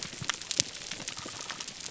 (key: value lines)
label: biophony
recorder: SoundTrap 300